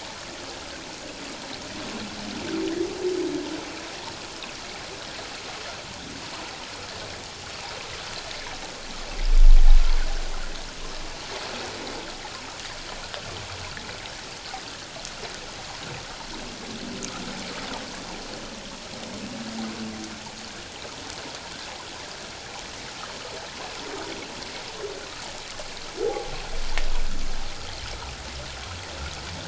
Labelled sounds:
26.0	26.3	humpback whale, 0.78 to 0.88 kHz

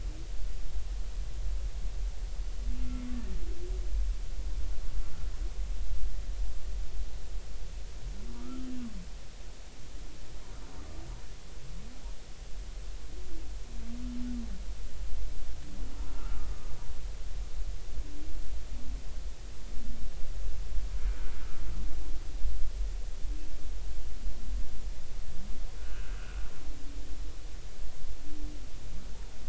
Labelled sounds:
2.8	3.1	humpback whale, 2.1 to 2.2 kHz
8.4	8.7	humpback whale, 1.1 to 1.5 kHz
16.1	16.4	humpback whale, 1.2 to 1.4 kHz
21.1	21.3	humpback whale, 1.4 to 1.5 kHz
25.8	26.5	humpback whale, 1.2 to 1.7 kHz

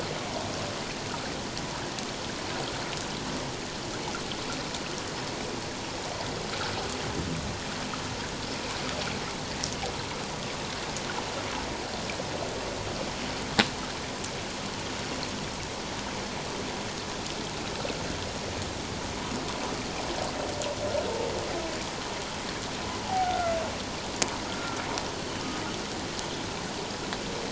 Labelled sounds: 23.0	23.6	humpback whale, 0.78 to 1.5 kHz
24.5	24.8	humpback whale, 1.2 to 1.4 kHz

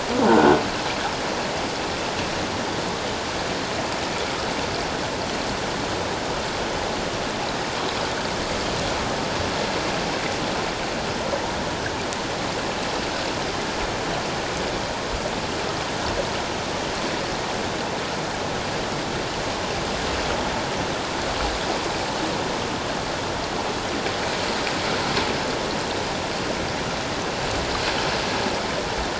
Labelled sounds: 0.3	0.6	croaking sound likely from a nearby submerged object, 1.3 to 1.6 kHz

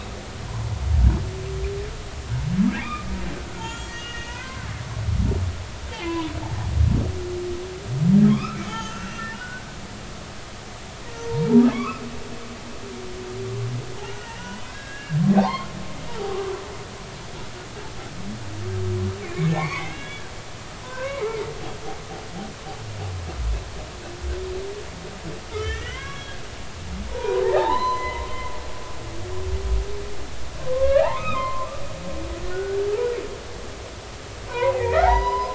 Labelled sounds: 2.8	3.0	humpback whale, 2.1 to 2.5 kHz
3.5	4.7	humpback whale, 0.93 to 7.1 kHz
5.9	6.4	humpback whale, 0.93 to 3.7 kHz
8.3	9.7	humpback whale, 0.83 to 3.7 kHz
11.2	12.0	humpback whale, 0.86 to 2.7 kHz
14.2	15.7	humpback whale, 0.80 to 4.4 kHz
19.2	21.3	humpback whale, 0.80 to 3.5 kHz
25.5	26.4	humpback whale, 0.99 to 3.4 kHz
27.1	28.3	humpback whale, 0.80 to 4.1 kHz
30.7	31.7	humpback whale, 0.96 to 3.8 kHz
32.3	32.8	humpback whale, 1.3 to 1.6 kHz
34.5	35.5	humpback whale, 0.80 to 6.0 kHz

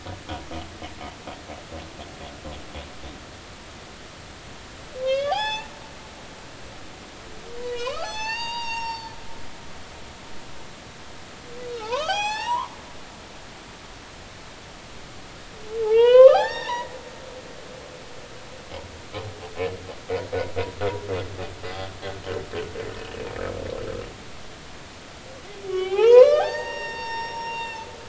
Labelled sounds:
5.0	5.7	humpback whale, 0.80 to 7.9 kHz
7.6	9.2	humpback whale, 0.80 to 8.0 kHz
11.7	12.7	humpback whale, 0.80 to 8.0 kHz
15.8	16.9	humpback whale, 0.80 to 4.8 kHz
21.6	21.9	humpback whale, 4.8 to 4.9 kHz
25.7	27.9	humpback whale, 0.80 to 6.2 kHz

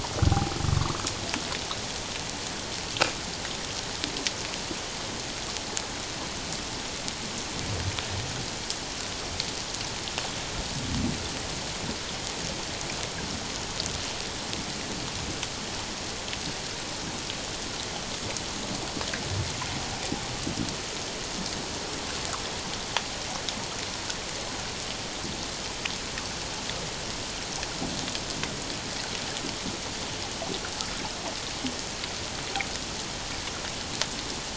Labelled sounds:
0.7	1.0	humpback whale, 0.97 to 1.3 kHz

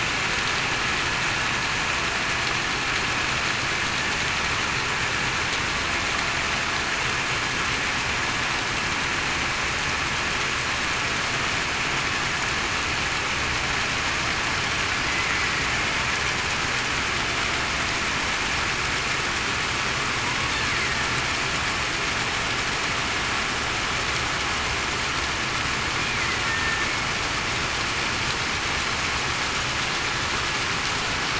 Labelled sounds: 26.4	26.9	killer whale, Bigg's (transient), 1.8 to 1.9 kHz

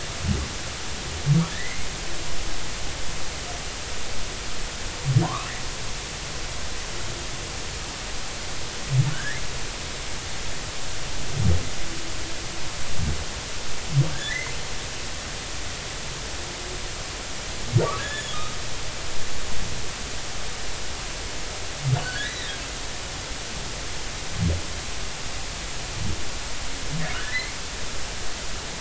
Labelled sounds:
1.5	1.9	humpback whale, 1.7 to 2.3 kHz
5.2	5.5	humpback whale, 0.86 to 1.4 kHz
9.1	9.4	humpback whale, 1.4 to 1.9 kHz
14.1	14.5	humpback whale, 1.5 to 2.2 kHz
18.0	18.6	humpback whale, 1.2 to 7.0 kHz
22.0	22.6	humpback whale, 1.4 to 4.0 kHz
27.1	27.5	humpback whale, 1.3 to 2.3 kHz

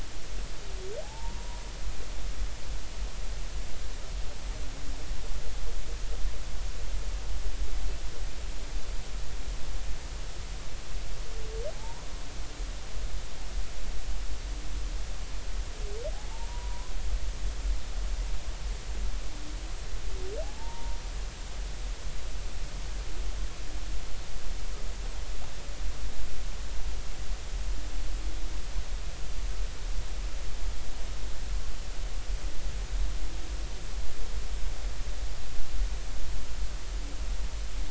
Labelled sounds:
1.0	1.6	humpback whale, 0.80 to 1.1 kHz
11.7	12.1	humpback whale, 0.80 to 1.0 kHz
16.3	16.9	humpback whale, 0.83 to 1.1 kHz
20.4	21.0	humpback whale, 0.80 to 0.99 kHz

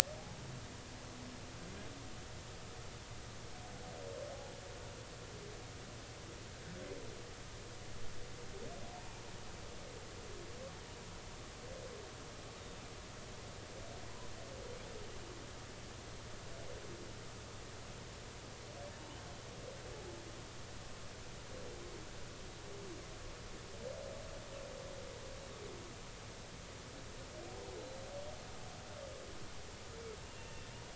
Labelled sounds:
12.6	12.8	humpback whale, 3.6 to 3.8 kHz
27.8	28.0	humpback whale, 3.9 to 4.1 kHz
30.2	30.7	humpback whale, 2.7 to 2.9 kHz

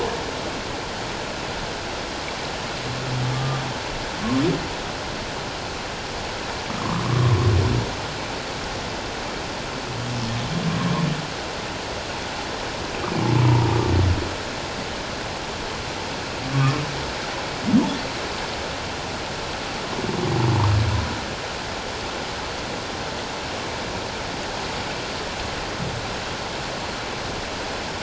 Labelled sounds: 3.4	3.6	humpback whale, 1.16 to 1.25 kHz
7.0	7.3	humpback whale, 0.94 to 1.2 kHz
13.5	13.8	humpback whale, 0.81 to 1.0 kHz
16.5	16.8	humpback whale, 1.0 to 1.3 kHz

